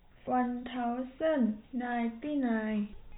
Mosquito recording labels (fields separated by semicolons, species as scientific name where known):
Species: no mosquito; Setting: cup